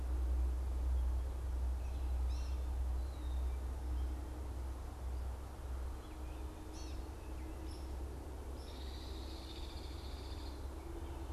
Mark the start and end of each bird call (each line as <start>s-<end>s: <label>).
0.0s-7.2s: Gray Catbird (Dumetella carolinensis)
8.5s-10.7s: Hairy Woodpecker (Dryobates villosus)